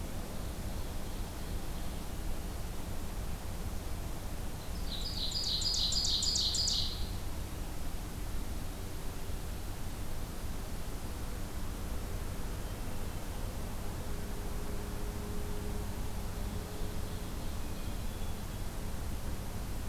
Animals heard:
Ovenbird (Seiurus aurocapilla), Hermit Thrush (Catharus guttatus)

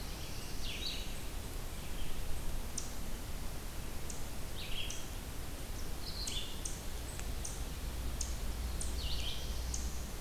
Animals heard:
Red-eyed Vireo (Vireo olivaceus), Black-throated Blue Warbler (Setophaga caerulescens), Eastern Chipmunk (Tamias striatus)

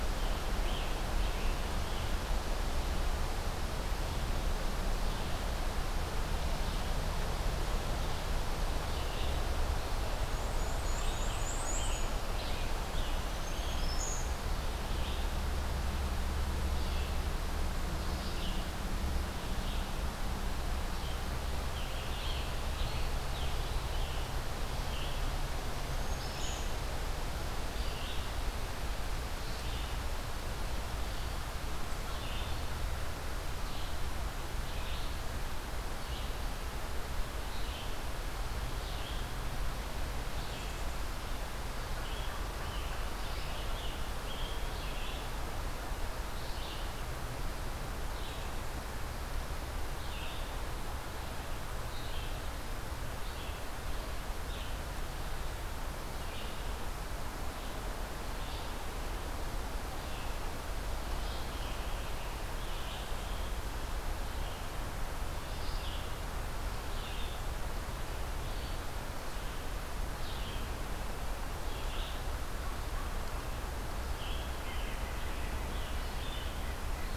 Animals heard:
Black-and-white Warbler (Mniotilta varia), Scarlet Tanager (Piranga olivacea), Red-eyed Vireo (Vireo olivaceus), Eastern Wood-Pewee (Contopus virens), Red-breasted Nuthatch (Sitta canadensis), Black-throated Green Warbler (Setophaga virens)

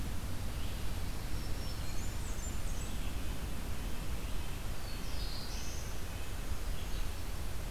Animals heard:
Black-throated Blue Warbler (Setophaga caerulescens), Black-throated Green Warbler (Setophaga virens), Blackburnian Warbler (Setophaga fusca), Red-eyed Vireo (Vireo olivaceus), Red-breasted Nuthatch (Sitta canadensis)

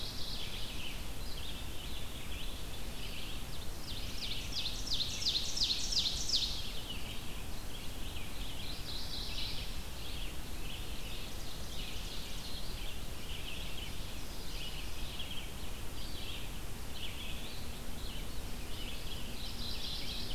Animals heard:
Ovenbird (Seiurus aurocapilla), Red-eyed Vireo (Vireo olivaceus), Mourning Warbler (Geothlypis philadelphia)

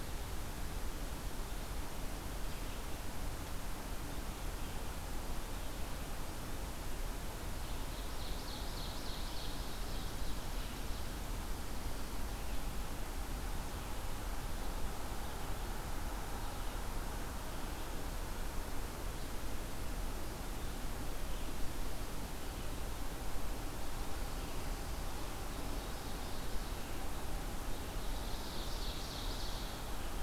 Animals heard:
Ovenbird (Seiurus aurocapilla)

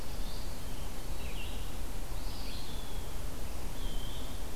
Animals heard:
Eastern Wood-Pewee (Contopus virens), Red-eyed Vireo (Vireo olivaceus), Black-throated Blue Warbler (Setophaga caerulescens)

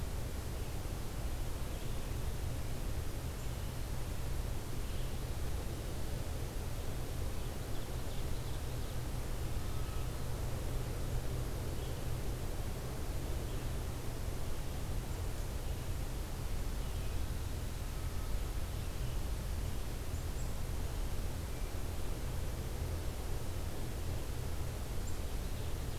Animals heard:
Ovenbird (Seiurus aurocapilla)

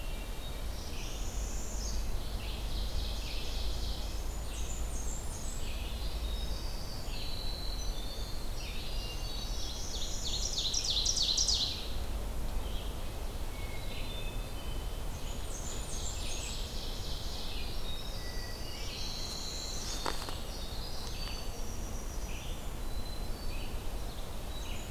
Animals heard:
Ovenbird (Seiurus aurocapilla), Hermit Thrush (Catharus guttatus), Winter Wren (Troglodytes hiemalis), Red-eyed Vireo (Vireo olivaceus), Northern Parula (Setophaga americana), Blackburnian Warbler (Setophaga fusca), Red-breasted Nuthatch (Sitta canadensis)

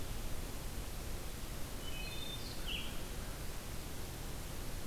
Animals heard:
Wood Thrush (Hylocichla mustelina), Red-eyed Vireo (Vireo olivaceus)

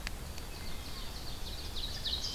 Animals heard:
White-throated Sparrow (Zonotrichia albicollis), Ovenbird (Seiurus aurocapilla)

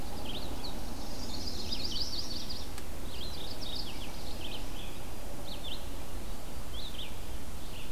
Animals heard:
Yellow-rumped Warbler (Setophaga coronata), Mourning Warbler (Geothlypis philadelphia), Red-eyed Vireo (Vireo olivaceus)

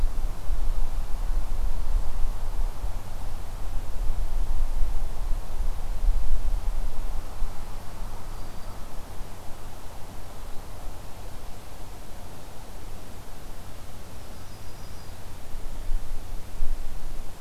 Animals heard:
Black-throated Green Warbler (Setophaga virens), Yellow-rumped Warbler (Setophaga coronata)

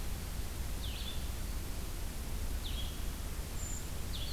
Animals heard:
Winter Wren (Troglodytes hiemalis), Blue-headed Vireo (Vireo solitarius), Brown Creeper (Certhia americana)

